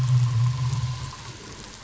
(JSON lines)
{"label": "anthrophony, boat engine", "recorder": "SoundTrap 500"}